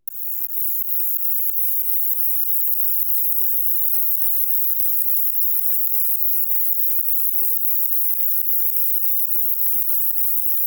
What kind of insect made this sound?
orthopteran